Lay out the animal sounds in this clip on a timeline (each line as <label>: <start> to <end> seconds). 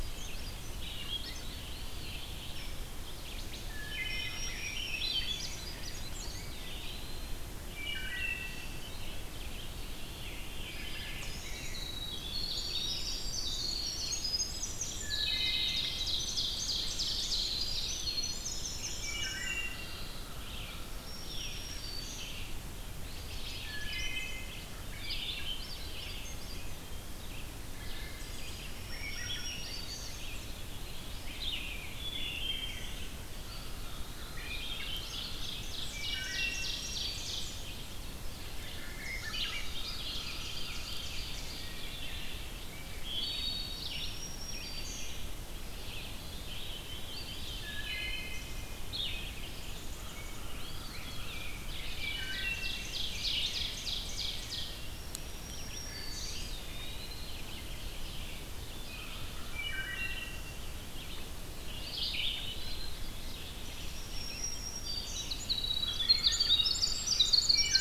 Swainson's Thrush (Catharus ustulatus): 0.0 to 1.4 seconds
Red-eyed Vireo (Vireo olivaceus): 0.0 to 20.8 seconds
Eastern Wood-Pewee (Contopus virens): 1.4 to 2.7 seconds
Wood Thrush (Hylocichla mustelina): 3.5 to 4.7 seconds
Black-throated Green Warbler (Setophaga virens): 3.9 to 5.7 seconds
Eastern Wood-Pewee (Contopus virens): 6.1 to 7.6 seconds
Wood Thrush (Hylocichla mustelina): 7.5 to 9.0 seconds
Wood Thrush (Hylocichla mustelina): 10.5 to 11.9 seconds
Winter Wren (Troglodytes hiemalis): 11.4 to 19.7 seconds
Black-throated Green Warbler (Setophaga virens): 12.3 to 13.9 seconds
Wood Thrush (Hylocichla mustelina): 15.1 to 16.0 seconds
Ovenbird (Seiurus aurocapilla): 15.2 to 18.3 seconds
Wood Thrush (Hylocichla mustelina): 18.8 to 20.2 seconds
Black-throated Green Warbler (Setophaga virens): 20.9 to 22.6 seconds
Red-eyed Vireo (Vireo olivaceus): 21.9 to 67.8 seconds
Eastern Wood-Pewee (Contopus virens): 22.8 to 23.8 seconds
Wood Thrush (Hylocichla mustelina): 23.5 to 24.7 seconds
Swainson's Thrush (Catharus ustulatus): 24.7 to 26.7 seconds
Wood Thrush (Hylocichla mustelina): 27.5 to 28.7 seconds
Black-throated Green Warbler (Setophaga virens): 28.6 to 30.3 seconds
Swainson's Thrush (Catharus ustulatus): 28.8 to 30.6 seconds
Wood Thrush (Hylocichla mustelina): 31.9 to 33.0 seconds
Eastern Wood-Pewee (Contopus virens): 33.2 to 34.7 seconds
Ovenbird (Seiurus aurocapilla): 34.4 to 37.9 seconds
Black-throated Green Warbler (Setophaga virens): 35.7 to 37.4 seconds
Wood Thrush (Hylocichla mustelina): 35.7 to 36.9 seconds
Swainson's Thrush (Catharus ustulatus): 38.5 to 40.5 seconds
Ovenbird (Seiurus aurocapilla): 38.7 to 42.4 seconds
Wood Thrush (Hylocichla mustelina): 42.6 to 43.9 seconds
Black-throated Green Warbler (Setophaga virens): 43.6 to 45.3 seconds
Veery (Catharus fuscescens): 46.4 to 48.1 seconds
Eastern Wood-Pewee (Contopus virens): 47.0 to 48.4 seconds
Wood Thrush (Hylocichla mustelina): 47.6 to 48.7 seconds
Eastern Wood-Pewee (Contopus virens): 50.0 to 51.7 seconds
Ovenbird (Seiurus aurocapilla): 51.8 to 54.9 seconds
Wood Thrush (Hylocichla mustelina): 51.8 to 53.0 seconds
Black-throated Green Warbler (Setophaga virens): 54.7 to 56.5 seconds
Eastern Wood-Pewee (Contopus virens): 56.1 to 57.5 seconds
Ovenbird (Seiurus aurocapilla): 57.4 to 59.2 seconds
Wood Thrush (Hylocichla mustelina): 59.2 to 60.7 seconds
Black-throated Green Warbler (Setophaga virens): 63.6 to 65.4 seconds
Winter Wren (Troglodytes hiemalis): 65.1 to 67.8 seconds